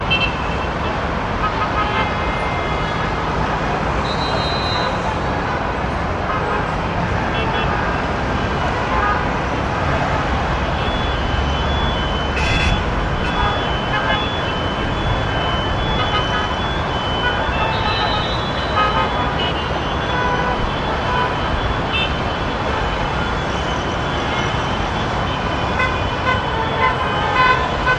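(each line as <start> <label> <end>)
0.0 Traffic noise with cars honking at varying loudness and intensity from different distances in an irregular pattern. 27.9
11.0 A siren sounds steadily in the far distance. 22.2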